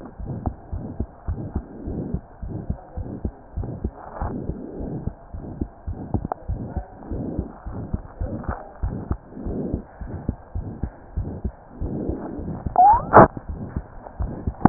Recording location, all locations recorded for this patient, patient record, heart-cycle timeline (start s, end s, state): pulmonary valve (PV)
aortic valve (AV)+pulmonary valve (PV)+tricuspid valve (TV)+mitral valve (MV)
#Age: Child
#Sex: Male
#Height: 111.0 cm
#Weight: 18.3 kg
#Pregnancy status: False
#Murmur: Present
#Murmur locations: aortic valve (AV)+mitral valve (MV)+pulmonary valve (PV)+tricuspid valve (TV)
#Most audible location: tricuspid valve (TV)
#Systolic murmur timing: Mid-systolic
#Systolic murmur shape: Diamond
#Systolic murmur grading: III/VI or higher
#Systolic murmur pitch: Medium
#Systolic murmur quality: Harsh
#Diastolic murmur timing: nan
#Diastolic murmur shape: nan
#Diastolic murmur grading: nan
#Diastolic murmur pitch: nan
#Diastolic murmur quality: nan
#Outcome: Abnormal
#Campaign: 2015 screening campaign
0.00	1.23	unannotated
1.23	1.40	S1
1.40	1.53	systole
1.53	1.64	S2
1.64	1.85	diastole
1.85	1.98	S1
1.98	2.11	systole
2.11	2.22	S2
2.22	2.40	diastole
2.40	2.54	S1
2.54	2.66	systole
2.66	2.78	S2
2.78	2.93	diastole
2.93	3.08	S1
3.08	3.21	systole
3.21	3.32	S2
3.32	3.54	diastole
3.54	3.70	S1
3.70	3.82	systole
3.82	3.92	S2
3.92	4.17	diastole
4.17	4.33	S1
4.33	4.46	systole
4.46	4.58	S2
4.58	4.77	diastole
4.77	4.89	S1
4.89	5.03	systole
5.03	5.12	S2
5.12	5.32	diastole
5.32	5.43	S1
5.43	5.58	systole
5.58	5.68	S2
5.68	5.85	diastole
5.85	5.98	S1
5.98	6.12	systole
6.12	6.24	S2
6.24	6.46	diastole
6.46	6.62	S1
6.62	6.73	systole
6.73	6.84	S2
6.84	7.08	diastole
7.08	7.21	S1
7.21	7.35	systole
7.35	7.48	S2
7.48	7.64	diastole
7.64	7.74	S1
7.74	14.69	unannotated